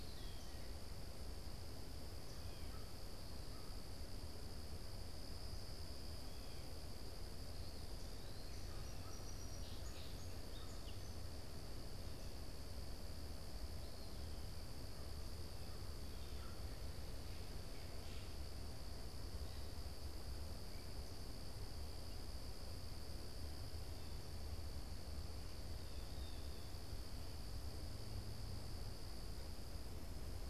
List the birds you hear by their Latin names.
Contopus virens, Cyanocitta cristata, Melospiza melodia